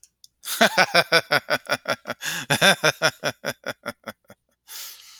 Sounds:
Laughter